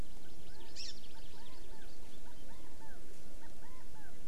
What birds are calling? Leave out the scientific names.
Hawaii Amakihi, Chinese Hwamei